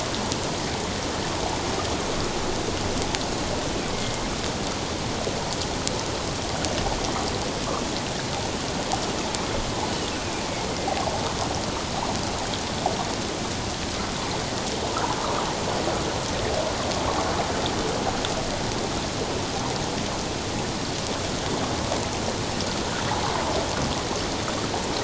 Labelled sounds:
3.9	4.2	killer whale, northern resident, A clan, AA subclan, 2.1 to 2.2 kHz

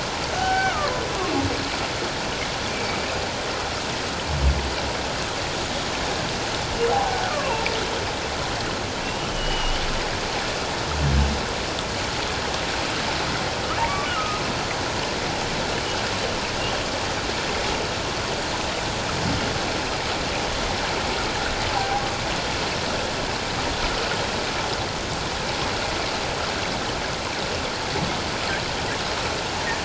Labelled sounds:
0.4	1.0	humpback whale, 0.78 to 2.3 kHz
6.9	7.7	humpback whale, 0.78 to 1.5 kHz
9.0	9.8	humpback whale, 2.7 to 3.2 kHz
14.1	14.4	humpback whale, 1.2 to 1.5 kHz
21.7	22.0	humpback whale, 0.78 to 1.1 kHz

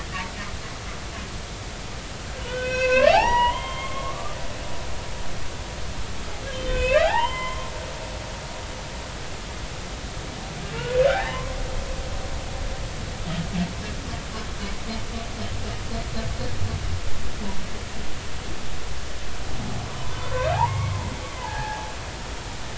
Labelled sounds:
2.4	4.4	humpback whale, 0.80 to 5.8 kHz
6.5	7.7	humpback whale, 0.80 to 3.8 kHz
11.1	11.3	humpback whale, 0.80 to 0.93 kHz
12.3	12.6	humpback whale, 0.96 to 1.2 kHz
19.9	21.0	humpback whale, 0.80 to 2.3 kHz
21.4	21.9	humpback whale, 0.80 to 1.8 kHz

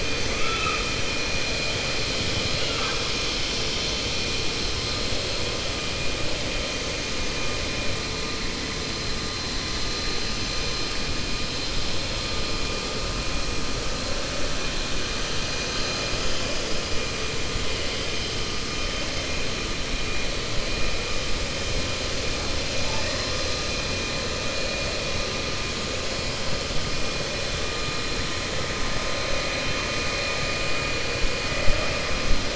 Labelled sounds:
0.2	0.9	killer whale, 1.2 to 3.5 kHz

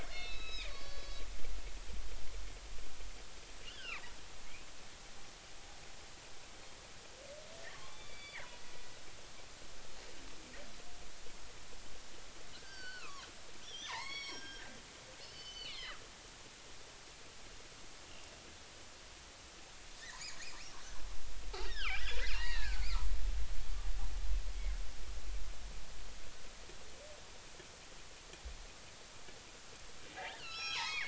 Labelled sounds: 0.1	1.2	killer whale, northern resident, G clan, 1.1 to 5.1 kHz
3.6	4.0	killer whale, northern resident, G clan, 0.93 to 5.2 kHz
7.7	8.5	killer whale, northern resident, G clan, 0.83 to 4.7 kHz
12.5	14.8	killer whale, northern resident, G clan, 0.80 to 6.3 kHz
15.2	16.0	killer whale, northern resident, G clan, 1.6 to 5.3 kHz
20.0	20.5	killer whale, northern resident, G clan, 1.7 to 7.1 kHz
21.6	23.1	killer whale, northern resident, G clan, 0.83 to 5.7 kHz
30.1	31.0	killer whale, northern resident, G clan, 0.80 to 5.8 kHz

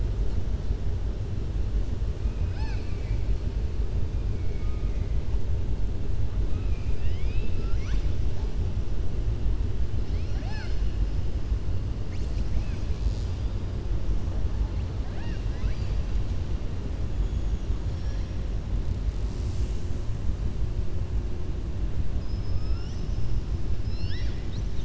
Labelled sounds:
6.5	8.1	killer whale, southern resident, 1.1 to 7.6 kHz
15.0	16.0	killer whale, southern resident, 0.71 to 5.6 kHz
22.1	23.2	killer whale, southern resident, 4.9 to 6.1 kHz

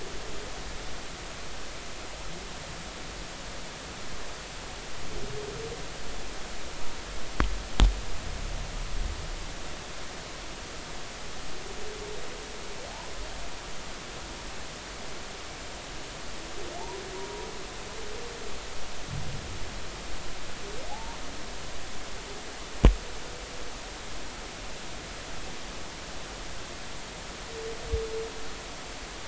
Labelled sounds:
17.1	17.5	humpback whale, 0.90 to 1.1 kHz
20.9	21.2	humpback whale, 0.80 to 0.99 kHz

